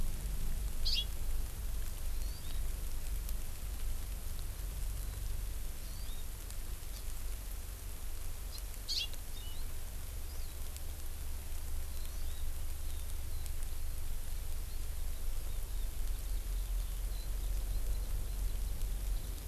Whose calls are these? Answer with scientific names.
Chlorodrepanis virens